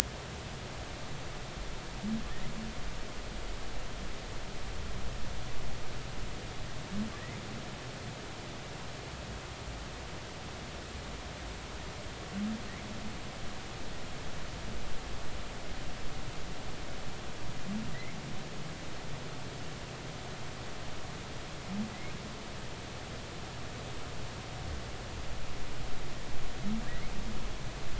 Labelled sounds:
17.9	18.2	humpback whale, 1.9 to 2.2 kHz
26.8	27.1	humpback whale, 1.6 to 2.3 kHz

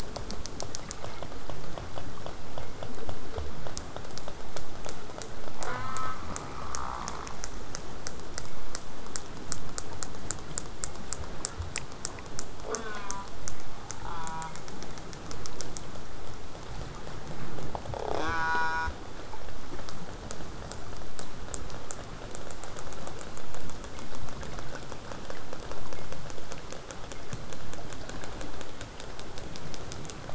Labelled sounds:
5.6	6.2	killer whale, southern resident, J pod, call S04, 0.33 to 5.1 kHz
12.7	13.3	killer whale, southern resident, J pod, call S04, 0.17 to 4.6 kHz
14.1	14.5	killer whale, southern resident, J pod, call S04, 0.67 to 4.8 kHz
17.9	18.9	killer whale, southern resident, J pod, call S04, 0.17 to 8.0 kHz

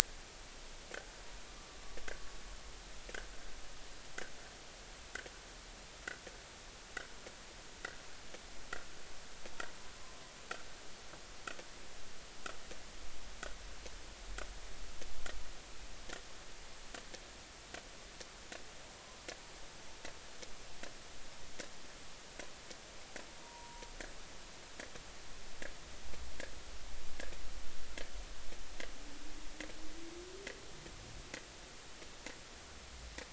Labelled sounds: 10.0	10.2	humpback whale, 0.96 to 1.1 kHz
23.4	23.9	humpback whale, 0.90 to 1.0 kHz

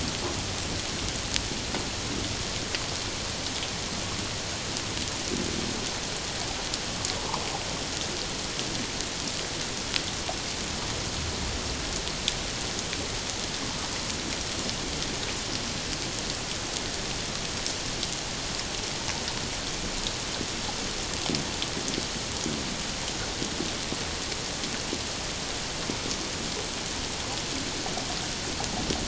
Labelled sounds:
7.2	7.4	humpback whale, 0.81 to 1.3 kHz

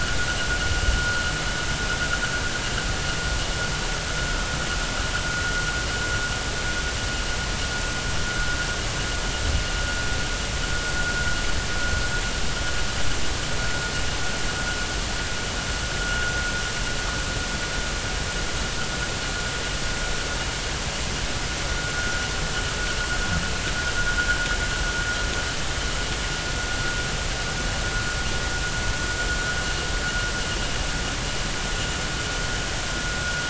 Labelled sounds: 16.0	16.3	vessel noise, 1.4 to 1.7 kHz

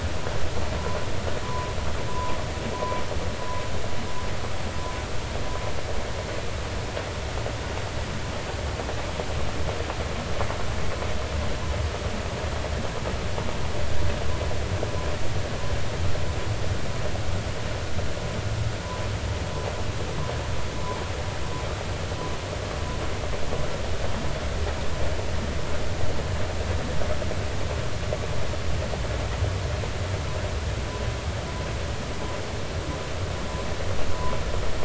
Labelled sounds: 1.4	1.7	humpback whale, 0.93 to 1.2 kHz
2.1	3.0	humpback whale, 0.93 to 1.1 kHz

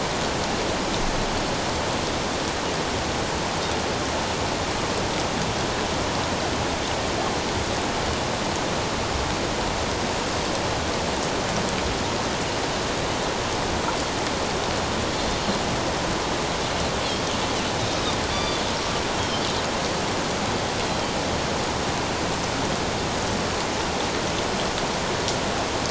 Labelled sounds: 18.3	18.6	Pacific white-sided dolphin, 1.1 to 4.8 kHz
19.2	19.5	Pacific white-sided dolphin, 3.1 to 3.3 kHz

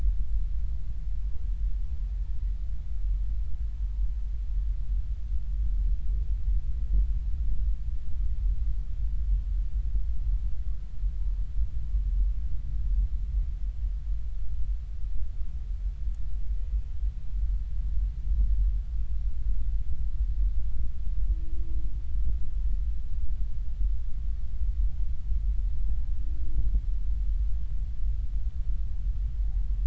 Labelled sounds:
25.8	26.2	humpback whale, 0.80 to 0.96 kHz

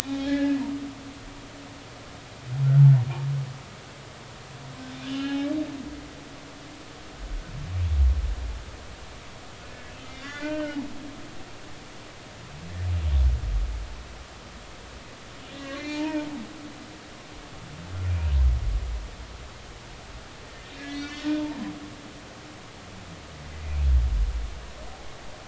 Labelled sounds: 0.0	0.6	humpback whale, 0.80 to 3.9 kHz
5.0	5.4	humpback whale, 2.7 to 3.1 kHz
9.7	10.8	humpback whale, 1.3 to 3.6 kHz
15.5	16.3	humpback whale, 0.86 to 6.0 kHz
18.1	18.3	humpback whale, 2.3 to 2.6 kHz
20.8	21.7	humpback whale, 0.83 to 5.9 kHz
23.6	23.9	humpback whale, 2.2 to 2.6 kHz

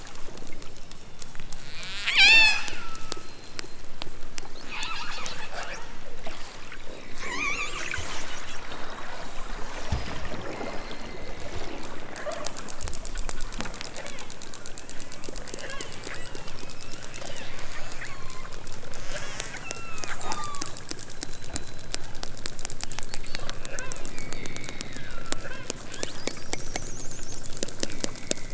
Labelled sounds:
0.5	1.7	killer whale, southern Alaska resident, 2.0 to 5.7 kHz
2.0	3.4	killer whale, southern Alaska resident, 0.41 to 8.0 kHz
4.7	6.0	killer whale, southern Alaska resident, 0.37 to 6.1 kHz
7.1	8.0	killer whale, southern Alaska resident, 0.60 to 8.0 kHz
10.5	11.3	killer whale, southern Alaska resident, 2.0 to 4.6 kHz
12.1	12.5	killer whale, southern Alaska resident, 0.28 to 2.4 kHz
13.9	14.3	killer whale, southern Alaska resident, 0.37 to 3.6 kHz
14.8	16.0	killer whale, southern Alaska resident, 0.78 to 3.7 kHz
17.3	18.6	killer whale, southern Alaska resident, 0.64 to 8.0 kHz
19.0	20.7	killer whale, southern Alaska resident, 0.55 to 8.0 kHz
23.1	25.7	killer whale, southern Alaska resident, 0.41 to 5.4 kHz

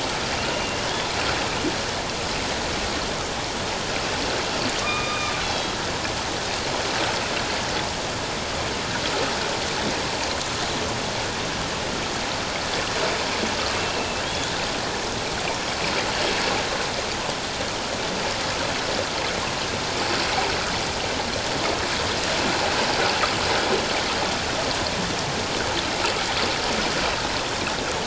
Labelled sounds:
0.4	0.9	killer whale, northern resident, A clan, AB subclan, H01 pod, 2.7 to 3.0 kHz
4.8	5.8	killer whale, northern resident, A clan, AB subclan, H01 pod, 1.1 to 4.2 kHz
13.8	14.5	killer whale, northern resident, A clan, AB subclan, H01 pod, 2.5 to 3.5 kHz

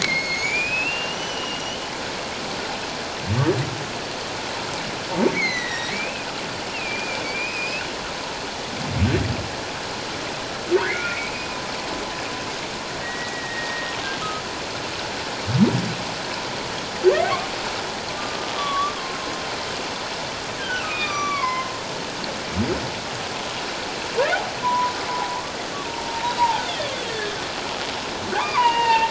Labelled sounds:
0.0	1.8	humpback whale, 2.0 to 7.3 kHz
5.3	6.3	humpback whale, 1.8 to 6.2 kHz
6.7	8.0	humpback whale, 2.2 to 2.9 kHz
10.8	11.3	humpback whale, 1.4 to 2.6 kHz
13.0	13.9	humpback whale, 1.8 to 2.0 kHz
17.1	17.5	humpback whale, 1.7 to 2.5 kHz
18.6	18.9	humpback whale, 1.1 to 3.5 kHz
20.6	21.7	humpback whale, 0.94 to 6.0 kHz
24.6	24.9	humpback whale, 0.91 to 1.1 kHz
26.1	26.6	humpback whale, 0.81 to 1.0 kHz
27.1	27.4	humpback whale, 1.6 to 1.9 kHz
28.4	29.0	humpback whale, 0.78 to 3.8 kHz

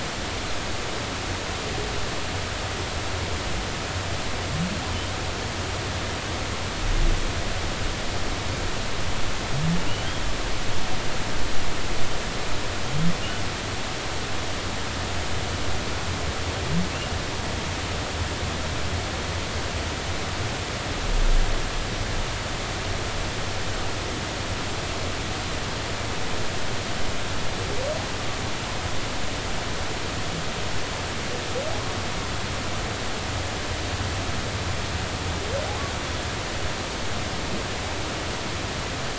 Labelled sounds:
9.9	10.2	humpback whale, 2.7 to 3.4 kHz

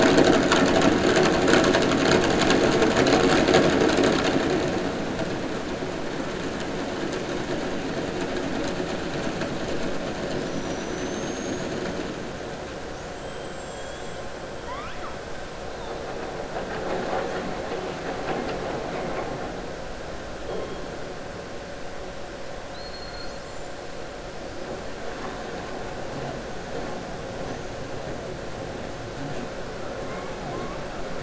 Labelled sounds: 10.2	11.8	killer whale, southern resident, 4.2 to 6.9 kHz
13.1	14.2	killer whale, southern resident, 7.1 to 7.8 kHz
14.6	15.1	killer whale, southern resident, 0.95 to 3.6 kHz

